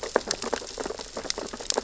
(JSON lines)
{"label": "biophony, sea urchins (Echinidae)", "recorder": "SoundTrap 600 or HydroMoth"}